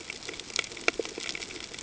{"label": "ambient", "recorder": "HydroMoth"}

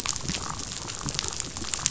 {"label": "biophony, chatter", "recorder": "SoundTrap 500"}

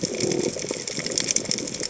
{"label": "biophony", "recorder": "HydroMoth"}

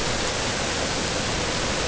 {"label": "ambient", "recorder": "HydroMoth"}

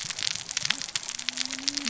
{"label": "biophony, cascading saw", "recorder": "SoundTrap 600 or HydroMoth"}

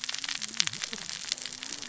{"label": "biophony, cascading saw", "recorder": "SoundTrap 600 or HydroMoth"}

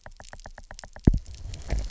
{"label": "biophony, knock", "recorder": "SoundTrap 300"}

